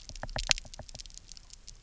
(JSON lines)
{"label": "biophony, knock", "recorder": "SoundTrap 300"}